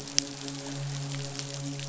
{"label": "biophony, midshipman", "recorder": "SoundTrap 500"}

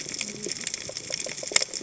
{"label": "biophony, cascading saw", "recorder": "HydroMoth"}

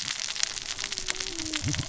{"label": "biophony, cascading saw", "recorder": "SoundTrap 600 or HydroMoth"}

